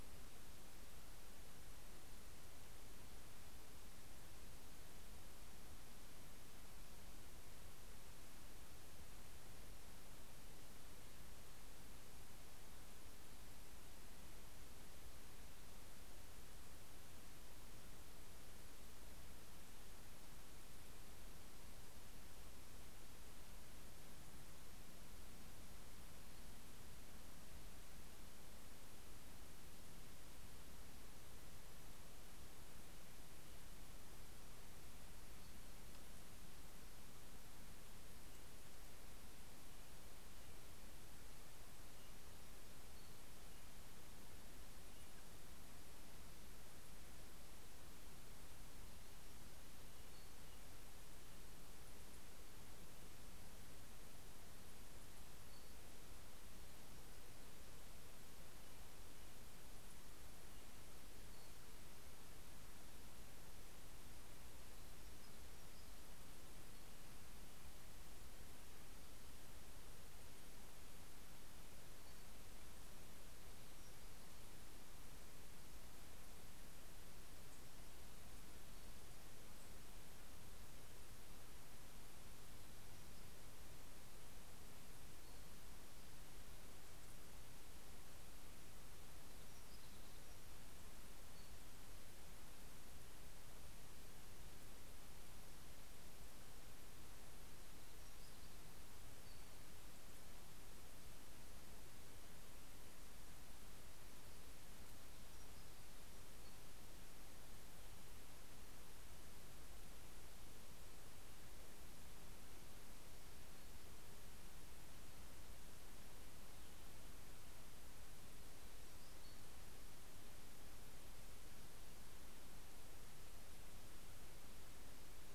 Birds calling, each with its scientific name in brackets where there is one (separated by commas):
Brown Creeper (Certhia americana)